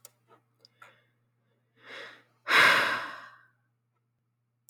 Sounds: Sigh